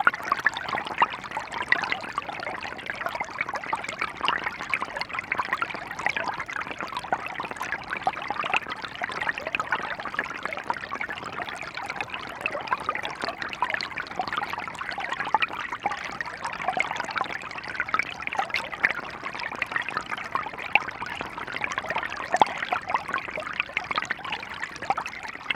Is it a broken record?
no